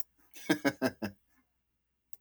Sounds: Laughter